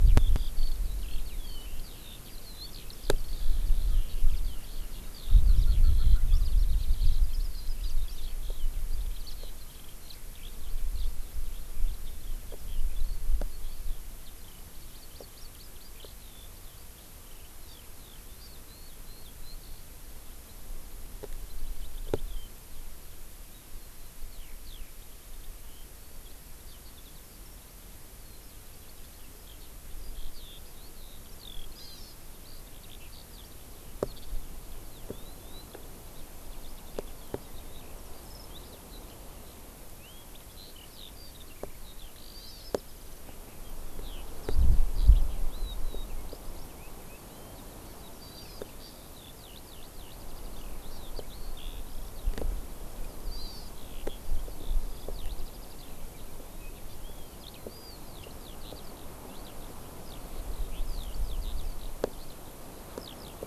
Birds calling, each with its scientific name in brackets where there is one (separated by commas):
Hawaii Amakihi (Chlorodrepanis virens), Eurasian Skylark (Alauda arvensis), Erckel's Francolin (Pternistis erckelii)